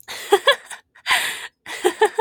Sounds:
Laughter